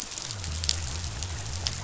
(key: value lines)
label: biophony
recorder: SoundTrap 500